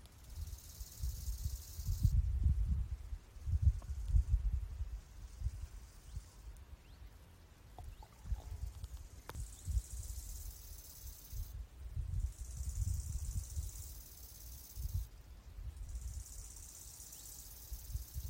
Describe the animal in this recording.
Chorthippus biguttulus, an orthopteran